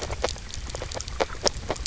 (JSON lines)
{"label": "biophony, grazing", "recorder": "SoundTrap 300"}